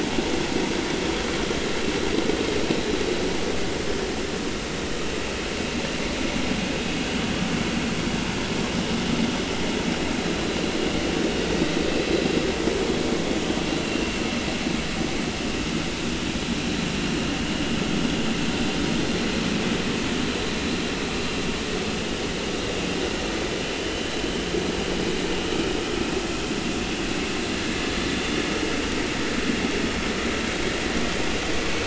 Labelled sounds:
13.8	14.1	vessel noise, 2.6 to 2.8 kHz
23.8	24.1	vessel noise, 2.8 to 3.1 kHz

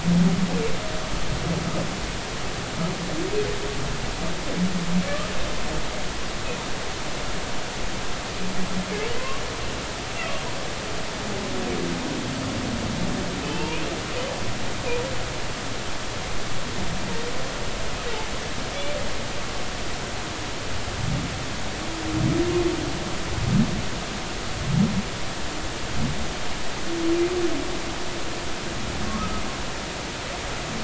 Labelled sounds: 5.0	5.3	humpback whale, 1.1 to 1.3 kHz
9.2	9.4	humpback whale, 0.99 to 1.2 kHz
13.4	13.8	humpback whale, 0.83 to 2.9 kHz

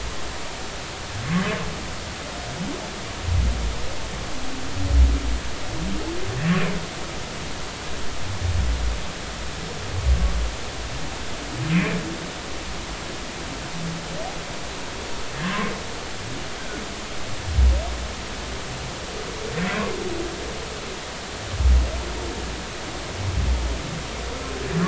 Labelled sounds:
11.7	12.0	humpback whale, 2.2 to 2.6 kHz
15.4	15.7	humpback whale, 0.99 to 1.2 kHz

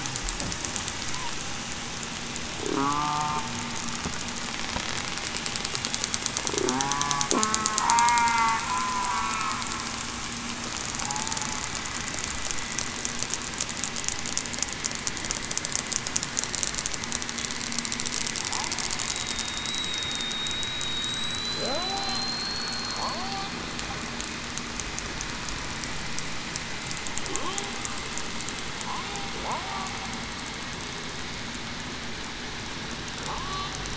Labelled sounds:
2.7	3.4	killer whale, southern resident, 0.73 to 1.2 kHz
6.7	9.5	killer whale, southern resident, 0.87 to 2.7 kHz
11.0	11.4	killer whale, southern resident, 0.77 to 0.91 kHz
19.0	20.3	killer whale, southern resident, 3.7 to 3.9 kHz
21.1	21.7	killer whale, southern resident, 3.2 to 8.0 kHz
22.5	23.3	killer whale, southern resident, 4.2 to 4.5 kHz
29.5	29.9	killer whale, southern resident, 0.61 to 0.80 kHz
33.3	33.7	killer whale, southern resident, 0.84 to 1.2 kHz

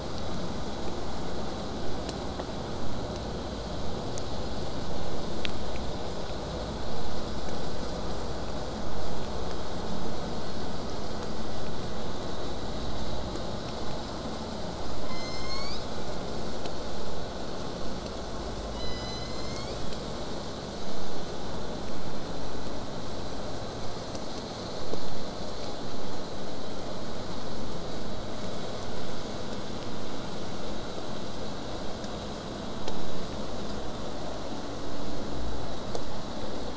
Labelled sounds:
15.0	16.2	killer whale, southern resident, J pod, call S01, 0.85 to 8.0 kHz
18.7	20.1	killer whale, southern resident, J pod, call S01, 1.8 to 8.0 kHz

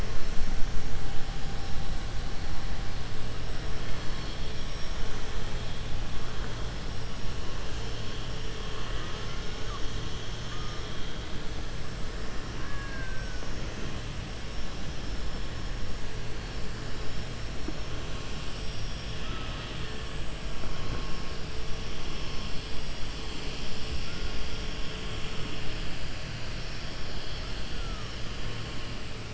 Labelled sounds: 4.4	5.3	killer whale, 4.9 to 6.7 kHz
12.5	13.4	killer whale, 0.66 to 2.6 kHz
18.2	20.0	killer whale, 1.2 to 5.7 kHz

